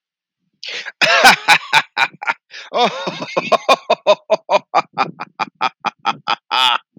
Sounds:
Laughter